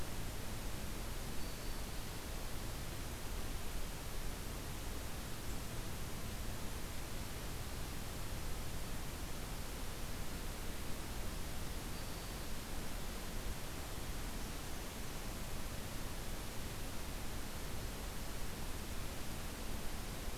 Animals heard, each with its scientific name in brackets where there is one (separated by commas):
Black-throated Green Warbler (Setophaga virens), Blackburnian Warbler (Setophaga fusca)